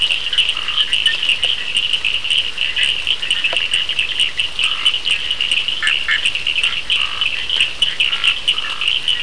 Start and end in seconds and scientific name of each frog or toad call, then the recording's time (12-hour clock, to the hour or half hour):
0.0	9.2	Sphaenorhynchus surdus
2.6	4.7	Boana bischoffi
4.5	5.1	Scinax perereca
5.7	6.4	Boana bischoffi
6.6	9.2	Scinax perereca
9pm